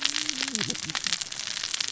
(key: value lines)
label: biophony, cascading saw
recorder: SoundTrap 600 or HydroMoth